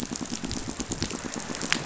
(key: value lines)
label: biophony, pulse
recorder: SoundTrap 500